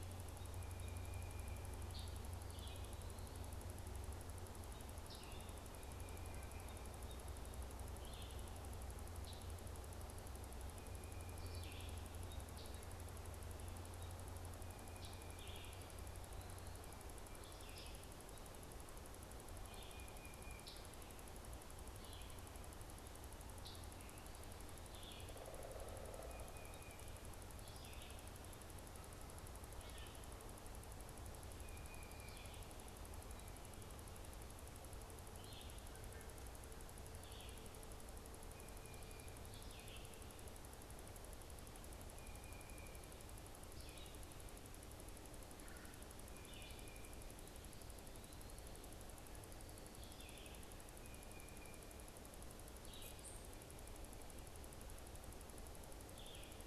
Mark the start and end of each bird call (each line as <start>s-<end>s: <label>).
0.4s-1.8s: Tufted Titmouse (Baeolophus bicolor)
1.8s-2.2s: Scarlet Tanager (Piranga olivacea)
2.4s-2.9s: Red-eyed Vireo (Vireo olivaceus)
5.0s-5.2s: Scarlet Tanager (Piranga olivacea)
7.9s-8.5s: Red-eyed Vireo (Vireo olivaceus)
9.1s-9.5s: Scarlet Tanager (Piranga olivacea)
11.2s-12.1s: Red-eyed Vireo (Vireo olivaceus)
12.5s-12.8s: Scarlet Tanager (Piranga olivacea)
15.0s-15.1s: Scarlet Tanager (Piranga olivacea)
15.3s-15.8s: Red-eyed Vireo (Vireo olivaceus)
17.1s-18.1s: Red-eyed Vireo (Vireo olivaceus)
19.5s-20.0s: Red-eyed Vireo (Vireo olivaceus)
19.7s-20.9s: Tufted Titmouse (Baeolophus bicolor)
20.6s-20.8s: Scarlet Tanager (Piranga olivacea)
21.9s-22.4s: Red-eyed Vireo (Vireo olivaceus)
23.6s-24.0s: Scarlet Tanager (Piranga olivacea)
24.8s-25.4s: Red-eyed Vireo (Vireo olivaceus)
25.1s-27.0s: Pileated Woodpecker (Dryocopus pileatus)
27.4s-28.3s: Red-eyed Vireo (Vireo olivaceus)
29.7s-30.3s: Red-eyed Vireo (Vireo olivaceus)
31.6s-32.6s: Tufted Titmouse (Baeolophus bicolor)
35.2s-37.7s: Red-eyed Vireo (Vireo olivaceus)
38.4s-39.6s: Tufted Titmouse (Baeolophus bicolor)
39.5s-40.2s: Red-eyed Vireo (Vireo olivaceus)
41.9s-43.2s: Tufted Titmouse (Baeolophus bicolor)
43.6s-44.2s: Red-eyed Vireo (Vireo olivaceus)
45.5s-46.1s: Red-bellied Woodpecker (Melanerpes carolinus)
46.3s-56.6s: Red-eyed Vireo (Vireo olivaceus)
50.7s-51.9s: Tufted Titmouse (Baeolophus bicolor)
53.1s-53.5s: unidentified bird